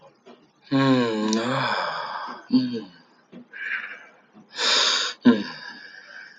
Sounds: Sigh